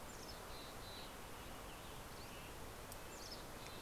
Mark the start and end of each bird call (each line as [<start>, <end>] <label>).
[0.00, 2.80] Western Tanager (Piranga ludoviciana)
[0.10, 1.20] Mountain Chickadee (Poecile gambeli)
[1.50, 2.50] Dusky Flycatcher (Empidonax oberholseri)
[2.60, 3.81] Mountain Chickadee (Poecile gambeli)
[2.60, 3.81] Red-breasted Nuthatch (Sitta canadensis)